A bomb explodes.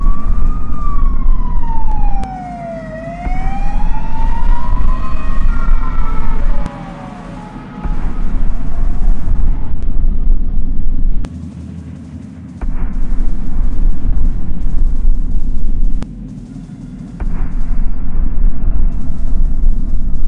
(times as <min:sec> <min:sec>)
0:12.6 0:14.9, 0:17.5 0:20.3